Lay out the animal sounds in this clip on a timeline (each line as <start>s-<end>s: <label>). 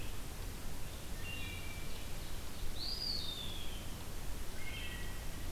0.0s-5.5s: Red-eyed Vireo (Vireo olivaceus)
0.9s-2.0s: Wood Thrush (Hylocichla mustelina)
1.4s-3.3s: Ovenbird (Seiurus aurocapilla)
2.6s-4.0s: Eastern Wood-Pewee (Contopus virens)
4.5s-5.4s: Wood Thrush (Hylocichla mustelina)